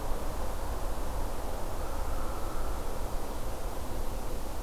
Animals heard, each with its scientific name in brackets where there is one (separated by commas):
Hairy Woodpecker (Dryobates villosus)